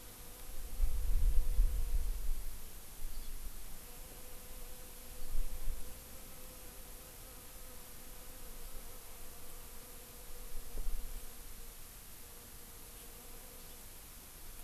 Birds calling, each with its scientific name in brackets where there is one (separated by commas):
Hawaii Amakihi (Chlorodrepanis virens)